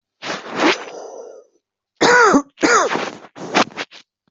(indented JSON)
{
  "expert_labels": [
    {
      "quality": "good",
      "cough_type": "dry",
      "dyspnea": false,
      "wheezing": false,
      "stridor": false,
      "choking": false,
      "congestion": false,
      "nothing": true,
      "diagnosis": "healthy cough",
      "severity": "pseudocough/healthy cough"
    }
  ],
  "age": 39,
  "gender": "female",
  "respiratory_condition": true,
  "fever_muscle_pain": false,
  "status": "symptomatic"
}